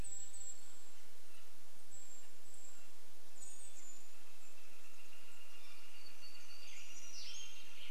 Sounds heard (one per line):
Western Tanager song
Canada Jay call
warbler song
Northern Flicker call
Golden-crowned Kinglet call
Golden-crowned Kinglet song